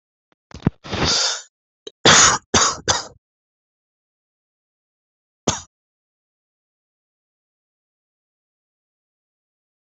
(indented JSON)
{
  "expert_labels": [
    {
      "quality": "good",
      "cough_type": "dry",
      "dyspnea": false,
      "wheezing": false,
      "stridor": false,
      "choking": false,
      "congestion": false,
      "nothing": true,
      "diagnosis": "COVID-19",
      "severity": "mild"
    }
  ]
}